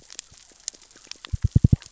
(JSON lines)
{"label": "biophony, knock", "recorder": "SoundTrap 600 or HydroMoth"}